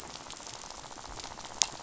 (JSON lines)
{"label": "biophony, rattle", "recorder": "SoundTrap 500"}